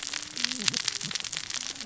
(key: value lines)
label: biophony, cascading saw
recorder: SoundTrap 600 or HydroMoth